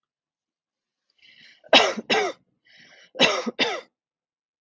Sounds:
Cough